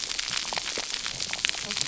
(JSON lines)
{"label": "biophony, cascading saw", "recorder": "SoundTrap 300"}